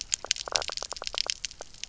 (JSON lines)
{"label": "biophony, knock croak", "recorder": "SoundTrap 300"}